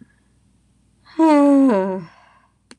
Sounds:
Sigh